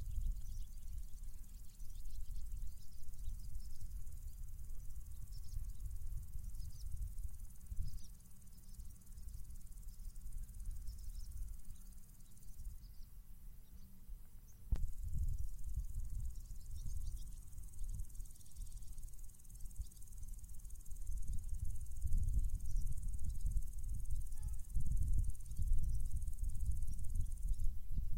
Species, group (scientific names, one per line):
Omocestus viridulus
Orthoptera